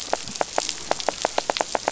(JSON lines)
{"label": "biophony, pulse", "recorder": "SoundTrap 500"}